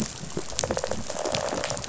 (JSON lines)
{"label": "biophony, rattle response", "recorder": "SoundTrap 500"}